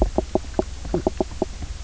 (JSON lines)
{"label": "biophony, knock croak", "recorder": "SoundTrap 300"}